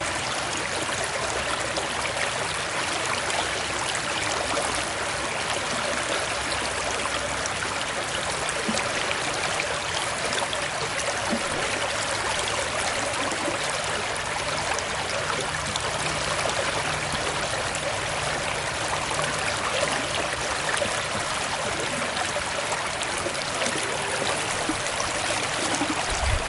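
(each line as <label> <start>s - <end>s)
Water flowing. 0.0s - 26.5s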